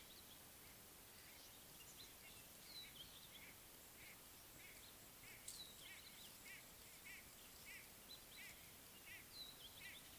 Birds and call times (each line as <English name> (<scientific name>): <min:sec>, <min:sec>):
White-bellied Go-away-bird (Corythaixoides leucogaster): 0:06.5, 0:09.1